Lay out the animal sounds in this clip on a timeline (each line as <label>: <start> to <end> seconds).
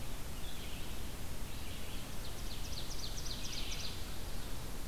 Red-eyed Vireo (Vireo olivaceus): 0.0 to 4.9 seconds
Ovenbird (Seiurus aurocapilla): 1.9 to 4.1 seconds